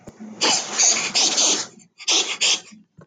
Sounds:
Sniff